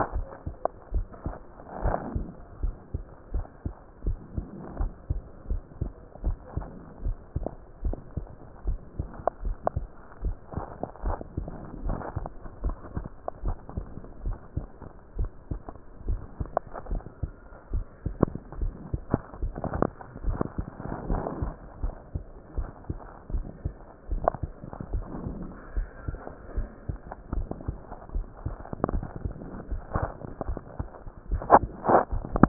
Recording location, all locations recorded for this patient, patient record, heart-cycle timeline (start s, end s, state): tricuspid valve (TV)
aortic valve (AV)+pulmonary valve (PV)+tricuspid valve (TV)+mitral valve (MV)
#Age: Child
#Sex: Male
#Height: 147.0 cm
#Weight: 31.4 kg
#Pregnancy status: False
#Murmur: Absent
#Murmur locations: nan
#Most audible location: nan
#Systolic murmur timing: nan
#Systolic murmur shape: nan
#Systolic murmur grading: nan
#Systolic murmur pitch: nan
#Systolic murmur quality: nan
#Diastolic murmur timing: nan
#Diastolic murmur shape: nan
#Diastolic murmur grading: nan
#Diastolic murmur pitch: nan
#Diastolic murmur quality: nan
#Outcome: Normal
#Campaign: 2015 screening campaign
0.00	0.11	unannotated
0.11	0.26	S1
0.26	0.46	systole
0.46	0.56	S2
0.56	0.94	diastole
0.94	1.06	S1
1.06	1.24	systole
1.24	1.36	S2
1.36	1.78	diastole
1.78	1.96	S1
1.96	2.14	systole
2.14	2.26	S2
2.26	2.58	diastole
2.58	2.74	S1
2.74	2.92	systole
2.92	3.04	S2
3.04	3.34	diastole
3.34	3.46	S1
3.46	3.64	systole
3.64	3.72	S2
3.72	4.06	diastole
4.06	4.18	S1
4.18	4.34	systole
4.34	4.46	S2
4.46	4.78	diastole
4.78	4.92	S1
4.92	5.08	systole
5.08	5.20	S2
5.20	5.50	diastole
5.50	5.62	S1
5.62	5.78	systole
5.78	5.92	S2
5.92	6.22	diastole
6.22	6.38	S1
6.38	6.54	systole
6.54	6.68	S2
6.68	7.04	diastole
7.04	7.18	S1
7.18	7.34	systole
7.34	7.46	S2
7.46	7.84	diastole
7.84	7.98	S1
7.98	8.16	systole
8.16	8.28	S2
8.28	8.66	diastole
8.66	8.80	S1
8.80	8.96	systole
8.96	9.08	S2
9.08	9.42	diastole
9.42	9.58	S1
9.58	9.74	systole
9.74	9.88	S2
9.88	10.24	diastole
10.24	10.38	S1
10.38	10.54	systole
10.54	10.64	S2
10.64	11.02	diastole
11.02	11.16	S1
11.16	11.36	systole
11.36	11.48	S2
11.48	11.84	diastole
11.84	11.98	S1
11.98	12.14	systole
12.14	12.26	S2
12.26	12.62	diastole
12.62	12.76	S1
12.76	12.94	systole
12.94	13.06	S2
13.06	13.42	diastole
13.42	13.58	S1
13.58	13.76	systole
13.76	13.88	S2
13.88	14.24	diastole
14.24	14.38	S1
14.38	14.56	systole
14.56	14.68	S2
14.68	15.14	diastole
15.14	15.30	S1
15.30	15.50	systole
15.50	15.62	S2
15.62	16.06	diastole
16.06	16.20	S1
16.20	16.38	systole
16.38	16.52	S2
16.52	16.90	diastole
16.90	17.04	S1
17.04	17.22	systole
17.22	17.34	S2
17.34	17.72	diastole
17.72	17.86	S1
17.86	18.04	systole
18.04	18.18	S2
18.18	18.56	diastole
18.56	18.74	S1
18.74	18.92	systole
18.92	19.02	S2
19.02	19.40	diastole
19.40	19.56	S1
19.56	19.76	systole
19.76	19.90	S2
19.90	20.22	diastole
20.22	20.38	S1
20.38	20.56	systole
20.56	20.66	S2
20.66	21.08	diastole
21.08	21.24	S1
21.24	21.40	systole
21.40	21.52	S2
21.52	21.82	diastole
21.82	21.96	S1
21.96	22.13	systole
22.13	22.24	S2
22.24	22.56	diastole
22.56	22.70	S1
22.70	22.88	systole
22.88	23.00	S2
23.00	23.32	diastole
23.32	23.46	S1
23.46	23.64	systole
23.64	23.74	S2
23.74	24.10	diastole
24.10	24.24	S1
24.24	24.41	systole
24.41	24.54	S2
24.54	24.92	diastole
24.92	25.06	S1
25.06	25.24	systole
25.24	25.38	S2
25.38	25.76	diastole
25.76	25.90	S1
25.90	26.06	systole
26.06	26.20	S2
26.20	26.56	diastole
26.56	26.70	S1
26.70	26.87	systole
26.87	26.98	S2
26.98	27.32	diastole
27.32	27.48	S1
27.48	27.66	systole
27.66	27.78	S2
27.78	28.14	diastole
28.14	28.28	S1
28.28	28.44	systole
28.44	28.58	S2
28.58	28.92	diastole
28.92	29.08	S1
29.08	29.24	systole
29.24	29.34	S2
29.34	29.70	diastole
29.70	29.82	S1
29.82	29.94	systole
29.94	30.10	S2
30.10	30.46	diastole
30.46	30.58	S1
30.58	30.78	systole
30.78	30.90	S2
30.90	31.30	diastole
31.30	31.42	S1
31.42	31.54	systole
31.54	31.70	S2
31.70	32.48	unannotated